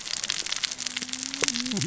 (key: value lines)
label: biophony, cascading saw
recorder: SoundTrap 600 or HydroMoth